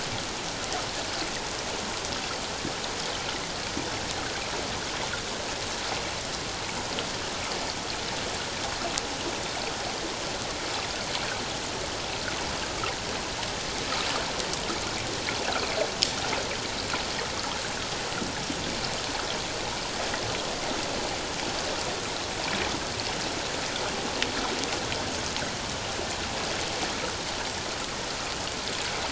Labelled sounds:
12.7	12.9	water noise, 1.2 to 1.4 kHz

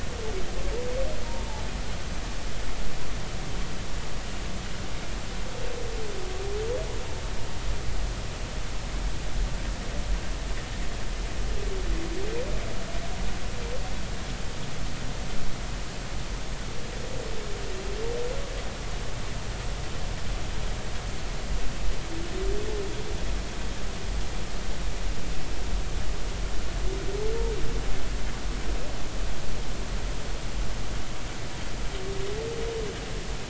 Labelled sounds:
1.2	1.6	humpback whale, 0.80 to 1.1 kHz

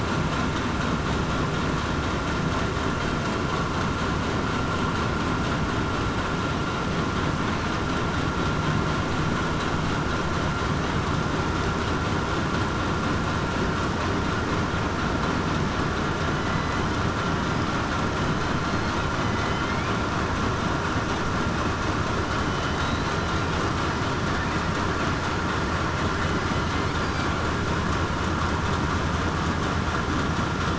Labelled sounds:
16.4	16.8	killer whale, southern resident, 2.0 to 2.1 kHz
19.2	19.5	killer whale, southern resident, 2.0 to 2.1 kHz
22.2	22.8	killer whale, southern resident, 3.0 to 3.1 kHz

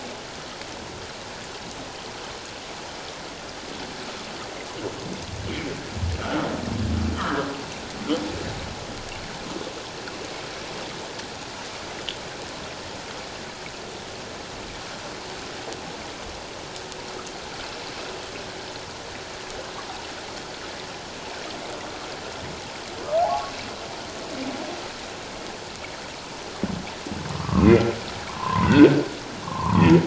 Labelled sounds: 7.1	7.5	humpback whale, 0.94 to 1.7 kHz
23.2	23.5	humpback whale, 0.78 to 1.2 kHz
27.4	27.9	humpback whale, 1.0 to 2.6 kHz
28.3	28.8	humpback whale, 0.78 to 2.1 kHz
29.4	29.9	humpback whale, 0.81 to 1.3 kHz

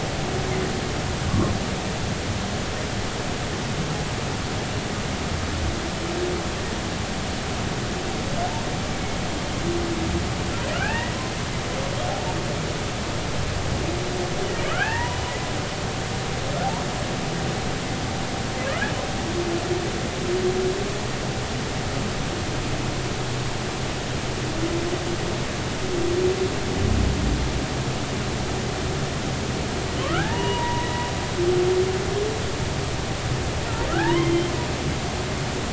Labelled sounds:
1.3	1.6	humpback whale, 0.93 to 1.2 kHz
10.7	11.1	humpback whale, 0.80 to 2.8 kHz
14.4	15.2	humpback whale, 0.80 to 2.8 kHz
30.0	31.1	humpback whale, 0.80 to 2.9 kHz
33.9	34.5	humpback whale, 0.80 to 3.3 kHz

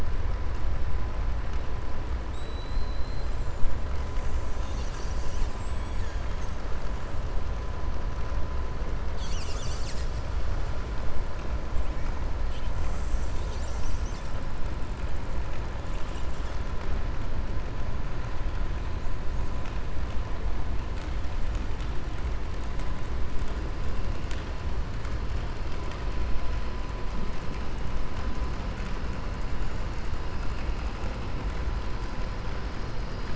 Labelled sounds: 2.2	3.3	killer whale, 3.6 to 4.8 kHz

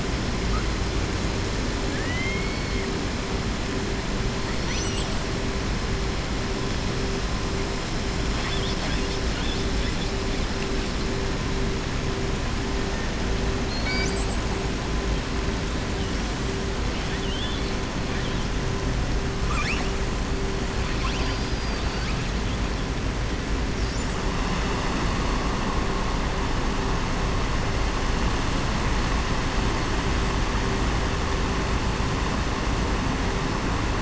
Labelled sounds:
1.8	2.8	killer whale, southern resident, 1.6 to 4.5 kHz
4.5	5.2	killer whale, southern resident, 1.9 to 7.9 kHz
8.3	9.7	killer whale, southern resident, 0.83 to 6.1 kHz
16.9	17.7	killer whale, southern resident, 1.6 to 4.5 kHz
19.4	19.9	killer whale, southern resident, 1.1 to 7.6 kHz
20.9	22.2	killer whale, southern resident, 1.1 to 5.8 kHz

